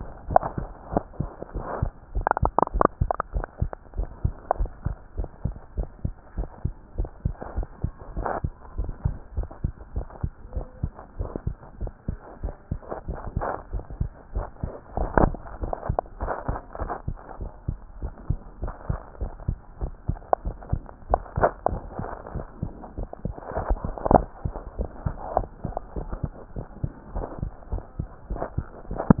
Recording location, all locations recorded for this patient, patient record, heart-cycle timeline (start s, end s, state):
tricuspid valve (TV)
aortic valve (AV)+pulmonary valve (PV)+tricuspid valve (TV)+mitral valve (MV)
#Age: Child
#Sex: Female
#Height: 118.0 cm
#Weight: 20.6 kg
#Pregnancy status: False
#Murmur: Absent
#Murmur locations: nan
#Most audible location: nan
#Systolic murmur timing: nan
#Systolic murmur shape: nan
#Systolic murmur grading: nan
#Systolic murmur pitch: nan
#Systolic murmur quality: nan
#Diastolic murmur timing: nan
#Diastolic murmur shape: nan
#Diastolic murmur grading: nan
#Diastolic murmur pitch: nan
#Diastolic murmur quality: nan
#Outcome: Abnormal
#Campaign: 2015 screening campaign
0.00	4.98	unannotated
4.98	5.16	diastole
5.16	5.30	S1
5.30	5.44	systole
5.44	5.56	S2
5.56	5.76	diastole
5.76	5.88	S1
5.88	6.04	systole
6.04	6.16	S2
6.16	6.36	diastole
6.36	6.48	S1
6.48	6.64	systole
6.64	6.76	S2
6.76	6.94	diastole
6.94	7.10	S1
7.10	7.22	systole
7.22	7.36	S2
7.36	7.56	diastole
7.56	7.68	S1
7.68	7.82	systole
7.82	7.94	S2
7.94	8.14	diastole
8.14	8.26	S1
8.26	8.42	systole
8.42	8.54	S2
8.54	8.76	diastole
8.76	8.89	S1
8.89	9.04	systole
9.04	9.18	S2
9.18	9.36	diastole
9.36	9.50	S1
9.50	9.62	systole
9.62	9.74	S2
9.74	9.94	diastole
9.94	10.06	S1
10.06	10.20	systole
10.20	10.32	S2
10.32	10.54	diastole
10.54	10.64	S1
10.64	10.80	systole
10.80	10.94	S2
10.94	11.18	diastole
11.18	11.32	S1
11.32	11.46	systole
11.46	11.58	S2
11.58	11.80	diastole
11.80	11.92	S1
11.92	12.08	systole
12.08	12.20	S2
12.20	12.42	diastole
12.42	12.54	S1
12.54	12.70	systole
12.70	12.82	S2
12.82	13.06	diastole
13.06	13.18	S1
13.18	13.34	systole
13.34	13.48	S2
13.48	13.72	diastole
13.72	13.82	S1
13.82	13.98	systole
13.98	14.12	S2
14.12	14.34	diastole
14.34	14.48	S1
14.48	14.62	systole
14.62	14.74	S2
14.74	14.94	diastole
14.94	15.09	S1
15.09	15.18	systole
15.18	15.34	S2
15.34	15.60	diastole
15.60	15.74	S1
15.74	15.86	systole
15.86	15.98	S2
15.98	16.20	diastole
16.20	16.30	S1
16.30	16.48	systole
16.48	16.60	S2
16.60	16.80	diastole
16.80	16.92	S1
16.92	17.06	systole
17.06	17.18	S2
17.18	17.40	diastole
17.40	17.50	S1
17.50	17.66	systole
17.66	17.80	S2
17.80	18.00	diastole
18.00	18.12	S1
18.12	18.28	systole
18.28	18.40	S2
18.40	18.60	diastole
18.60	18.74	S1
18.74	18.88	systole
18.88	19.02	S2
19.02	19.20	diastole
19.20	19.34	S1
19.34	19.46	systole
19.46	19.60	S2
19.60	19.80	diastole
19.80	19.94	S1
19.94	20.08	systole
20.08	20.20	S2
20.20	29.20	unannotated